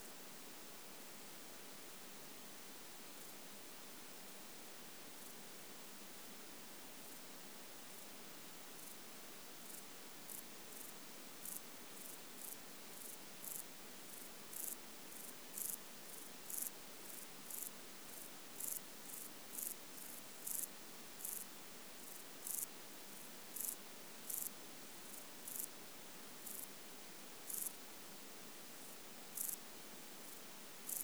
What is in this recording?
Euchorthippus declivus, an orthopteran